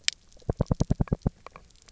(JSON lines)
{"label": "biophony, knock", "recorder": "SoundTrap 300"}